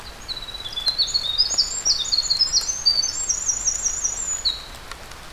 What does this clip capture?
Winter Wren